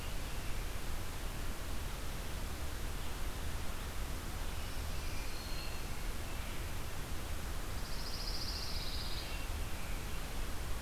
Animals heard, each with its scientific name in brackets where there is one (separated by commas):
Black-throated Green Warbler (Setophaga virens), American Robin (Turdus migratorius), Pine Warbler (Setophaga pinus)